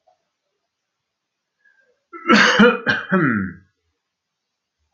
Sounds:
Cough